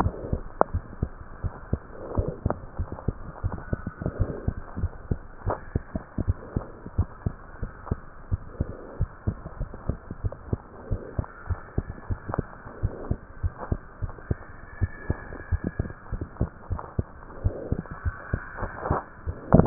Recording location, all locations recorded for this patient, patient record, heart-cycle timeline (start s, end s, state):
tricuspid valve (TV)
aortic valve (AV)+pulmonary valve (PV)+tricuspid valve (TV)+mitral valve (MV)
#Age: Child
#Sex: Male
#Height: 92.0 cm
#Weight: 15.2 kg
#Pregnancy status: False
#Murmur: Absent
#Murmur locations: nan
#Most audible location: nan
#Systolic murmur timing: nan
#Systolic murmur shape: nan
#Systolic murmur grading: nan
#Systolic murmur pitch: nan
#Systolic murmur quality: nan
#Diastolic murmur timing: nan
#Diastolic murmur shape: nan
#Diastolic murmur grading: nan
#Diastolic murmur pitch: nan
#Diastolic murmur quality: nan
#Outcome: Normal
#Campaign: 2015 screening campaign
0.00	0.38	unannotated
0.38	0.70	diastole
0.70	0.84	S1
0.84	1.00	systole
1.00	1.16	S2
1.16	1.42	diastole
1.42	1.54	S1
1.54	1.70	systole
1.70	1.82	S2
1.82	2.12	diastole
2.12	2.26	S1
2.26	2.42	systole
2.42	2.58	S2
2.58	2.76	diastole
2.76	2.90	S1
2.90	3.04	systole
3.04	3.18	S2
3.18	3.44	diastole
3.44	3.60	S1
3.60	3.72	systole
3.72	3.84	S2
3.84	4.14	diastole
4.14	4.32	S1
4.32	4.46	systole
4.46	4.56	S2
4.56	4.78	diastole
4.78	4.92	S1
4.92	5.06	systole
5.06	5.22	S2
5.22	5.46	diastole
5.46	5.56	S1
5.56	5.72	systole
5.72	5.86	S2
5.86	6.16	diastole
6.16	6.34	S1
6.34	6.54	systole
6.54	6.68	S2
6.68	6.96	diastole
6.96	7.10	S1
7.10	7.22	systole
7.22	7.34	S2
7.34	7.60	diastole
7.60	7.72	S1
7.72	7.90	systole
7.90	8.00	S2
8.00	8.30	diastole
8.30	8.40	S1
8.40	8.56	systole
8.56	8.68	S2
8.68	8.96	diastole
8.96	9.10	S1
9.10	9.26	systole
9.26	9.40	S2
9.40	9.58	diastole
9.58	9.70	S1
9.70	9.86	systole
9.86	9.98	S2
9.98	10.20	diastole
10.20	10.34	S1
10.34	10.48	systole
10.48	10.62	S2
10.62	10.86	diastole
10.86	11.00	S1
11.00	11.16	systole
11.16	11.28	S2
11.28	11.48	diastole
11.48	11.60	S1
11.60	11.76	systole
11.76	11.90	S2
11.90	12.10	diastole
12.10	12.20	S1
12.20	12.36	systole
12.36	12.48	S2
12.48	12.78	diastole
12.78	12.92	S1
12.92	13.08	systole
13.08	13.20	S2
13.20	13.42	diastole
13.42	13.56	S1
13.56	13.70	systole
13.70	13.82	S2
13.82	14.02	diastole
14.02	14.14	S1
14.14	14.28	systole
14.28	14.44	S2
14.44	14.74	diastole
14.74	14.90	S1
14.90	15.08	systole
15.08	15.22	S2
15.22	15.50	diastole
15.50	15.62	S1
15.62	15.78	systole
15.78	15.92	S2
15.92	16.12	diastole
16.12	16.28	S1
16.28	16.38	systole
16.38	16.50	S2
16.50	16.70	diastole
16.70	16.82	S1
16.82	16.96	systole
16.96	17.12	S2
17.12	17.40	diastole
17.40	17.58	S1
17.58	17.70	systole
17.70	17.84	S2
17.84	18.04	diastole
18.04	18.16	S1
18.16	18.32	systole
18.32	18.40	S2
18.40	18.60	diastole
18.60	18.72	S1
18.72	18.86	systole
18.86	19.02	S2
19.02	19.26	diastole
19.26	19.38	S1
19.38	19.66	unannotated